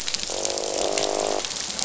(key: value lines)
label: biophony, croak
recorder: SoundTrap 500